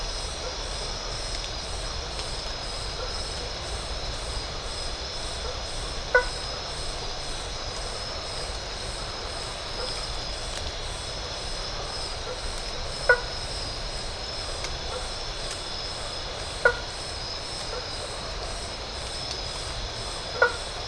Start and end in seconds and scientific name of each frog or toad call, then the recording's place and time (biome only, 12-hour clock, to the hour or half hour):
3.0	3.2	Boana faber
6.0	6.6	Boana faber
12.2	13.5	Boana faber
14.7	15.2	Boana faber
16.4	17.1	Boana faber
20.2	20.8	Boana faber
Atlantic Forest, ~11pm